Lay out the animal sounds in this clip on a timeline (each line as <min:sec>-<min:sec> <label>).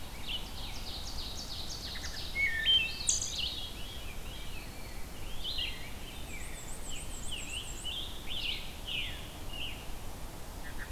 0:00.0-0:02.8 Ovenbird (Seiurus aurocapilla)
0:00.1-0:10.9 Red-eyed Vireo (Vireo olivaceus)
0:01.8-0:03.7 Wood Thrush (Hylocichla mustelina)
0:02.6-0:04.9 Veery (Catharus fuscescens)
0:04.6-0:06.7 Rose-breasted Grosbeak (Pheucticus ludovicianus)
0:05.8-0:08.2 Black-and-white Warbler (Mniotilta varia)
0:06.8-0:09.9 Scarlet Tanager (Piranga olivacea)